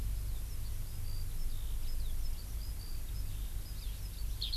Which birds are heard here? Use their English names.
Eurasian Skylark